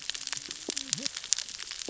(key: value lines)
label: biophony, cascading saw
recorder: SoundTrap 600 or HydroMoth